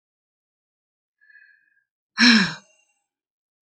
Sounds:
Sigh